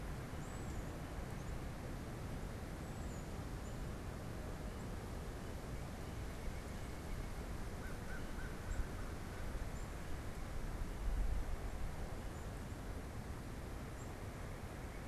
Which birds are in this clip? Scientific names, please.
Baeolophus bicolor, Sitta carolinensis, Corvus brachyrhynchos